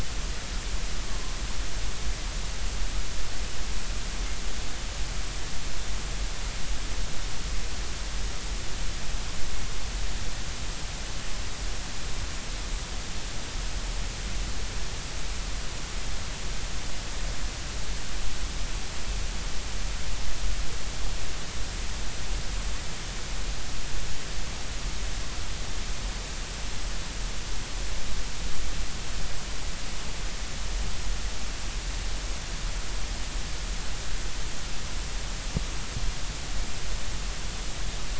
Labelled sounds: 1.1	1.4	humpback whale, 0.99 to 1.2 kHz

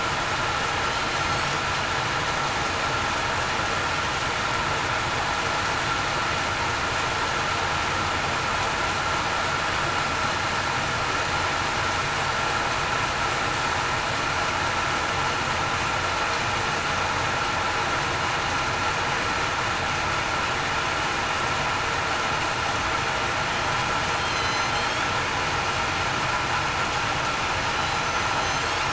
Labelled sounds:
24.2	24.6	killer whale, southern resident, 3.0 to 3.3 kHz
28.3	28.7	killer whale, southern resident, 4.0 to 4.3 kHz

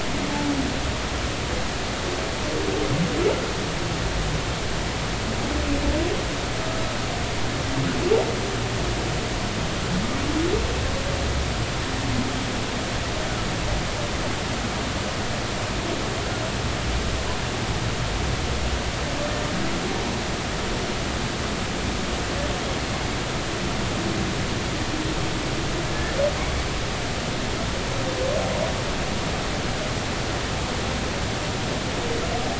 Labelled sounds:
25.9	26.2	humpback whale, 1.7 to 1.9 kHz

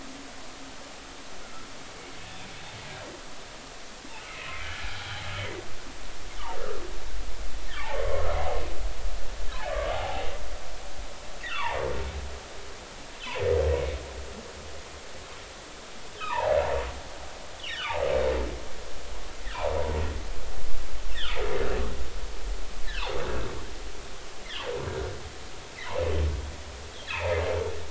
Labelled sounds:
4.6	4.9	humpback whale, 1.6 to 1.8 kHz
5.4	5.6	humpback whale, 1.9 to 2.1 kHz
7.7	8.3	humpback whale, 1.0 to 1.9 kHz
9.7	10.3	humpback whale, 0.80 to 1.2 kHz
11.4	11.8	humpback whale, 0.80 to 3.7 kHz
16.2	16.6	humpback whale, 0.80 to 2.8 kHz
17.6	18.0	humpback whale, 1.1 to 3.6 kHz
27.1	27.4	humpback whale, 2.2 to 2.7 kHz

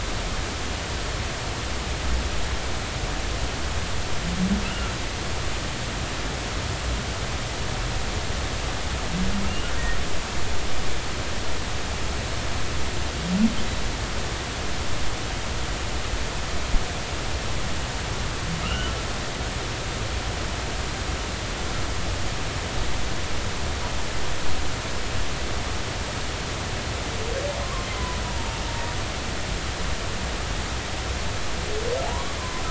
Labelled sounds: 4.7	4.9	humpback whale, 1.3 to 1.5 kHz
9.4	9.7	humpback whale, 2.7 to 3.0 kHz
18.6	18.9	humpback whale, 1.2 to 3.1 kHz
27.6	28.2	humpback whale, 0.96 to 1.2 kHz
32.1	32.4	humpback whale, 0.80 to 1.2 kHz

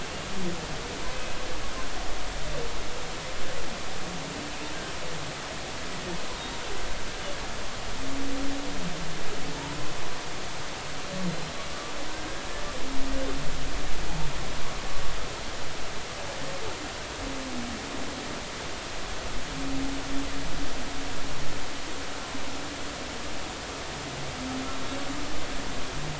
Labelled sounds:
12.1	12.5	humpback whale, 1.4 to 1.7 kHz

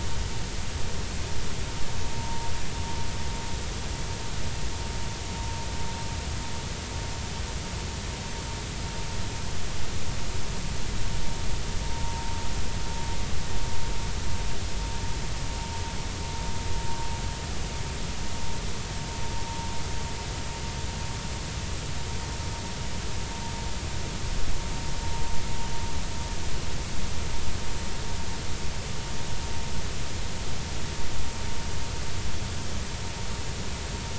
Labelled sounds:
2.1	2.5	vessel noise, 0.86 to 0.96 kHz

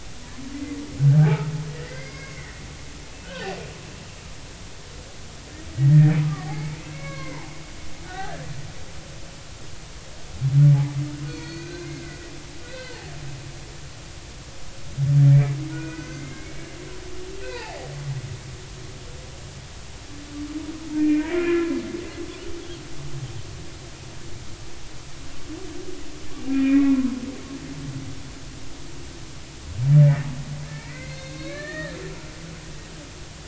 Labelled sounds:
0.5	1.5	humpback whale, 0.80 to 2.1 kHz
1.8	3.6	humpback whale, 0.80 to 4.9 kHz
5.7	8.5	humpback whale, 0.80 to 2.3 kHz
11.3	13.0	humpback whale, 1.3 to 6.5 kHz
15.7	16.7	humpback whale, 1.4 to 2.6 kHz
17.4	17.9	humpback whale, 0.80 to 2.1 kHz
21.0	21.7	humpback whale, 1.3 to 2.5 kHz
26.5	27.1	humpback whale, 0.96 to 2.6 kHz
30.0	30.3	humpback whale, 1.7 to 2.0 kHz
30.6	32.0	humpback whale, 1.0 to 4.4 kHz

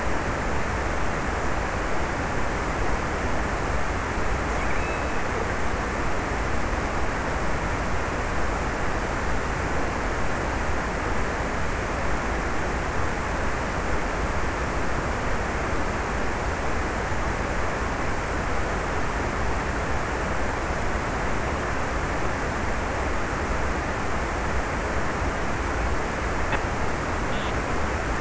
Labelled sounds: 3.4	5.7	killer whale, offshore, 1.5 to 2.8 kHz

